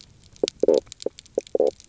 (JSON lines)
{"label": "biophony, knock croak", "recorder": "SoundTrap 300"}